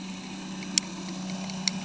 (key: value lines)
label: anthrophony, boat engine
recorder: HydroMoth